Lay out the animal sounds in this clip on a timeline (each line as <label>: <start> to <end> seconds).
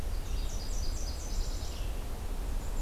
Nashville Warbler (Leiothlypis ruficapilla): 0.0 to 2.1 seconds
Red-eyed Vireo (Vireo olivaceus): 1.5 to 2.8 seconds
Black-and-white Warbler (Mniotilta varia): 2.3 to 2.8 seconds